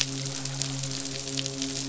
{"label": "biophony, midshipman", "recorder": "SoundTrap 500"}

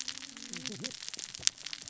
{"label": "biophony, cascading saw", "recorder": "SoundTrap 600 or HydroMoth"}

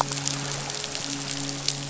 {"label": "biophony, midshipman", "recorder": "SoundTrap 500"}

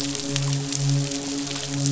{"label": "biophony, midshipman", "recorder": "SoundTrap 500"}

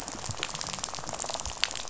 {"label": "biophony, rattle", "recorder": "SoundTrap 500"}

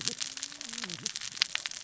{"label": "biophony, cascading saw", "recorder": "SoundTrap 600 or HydroMoth"}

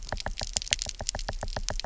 {"label": "biophony, knock", "recorder": "SoundTrap 300"}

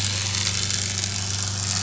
{"label": "anthrophony, boat engine", "recorder": "SoundTrap 500"}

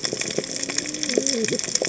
{"label": "biophony, cascading saw", "recorder": "HydroMoth"}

